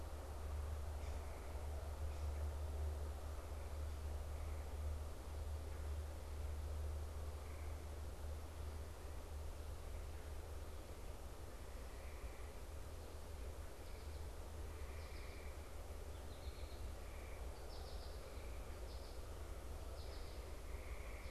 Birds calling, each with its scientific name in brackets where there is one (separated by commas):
American Goldfinch (Spinus tristis)